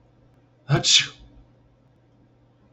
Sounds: Sneeze